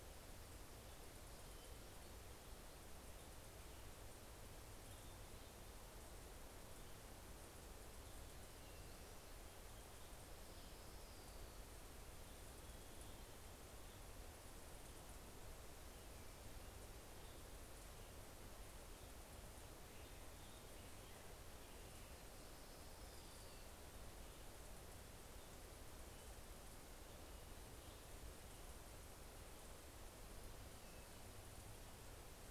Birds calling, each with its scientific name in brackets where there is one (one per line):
Orange-crowned Warbler (Leiothlypis celata)